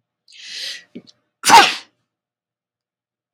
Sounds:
Sneeze